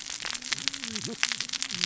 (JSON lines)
{"label": "biophony, cascading saw", "recorder": "SoundTrap 600 or HydroMoth"}